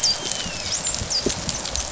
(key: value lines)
label: biophony, dolphin
recorder: SoundTrap 500